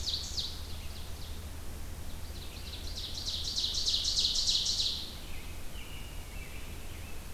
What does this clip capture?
Ovenbird, American Robin, Scarlet Tanager